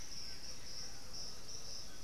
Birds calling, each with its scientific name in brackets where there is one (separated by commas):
Blue-gray Saltator (Saltator coerulescens), Black-billed Thrush (Turdus ignobilis), White-throated Toucan (Ramphastos tucanus)